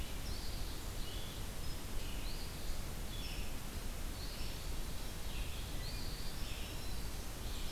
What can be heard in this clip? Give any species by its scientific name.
Vireo olivaceus, Sayornis phoebe, Setophaga virens